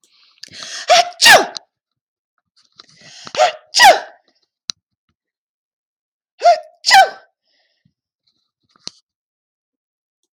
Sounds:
Sneeze